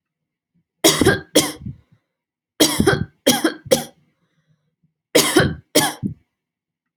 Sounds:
Cough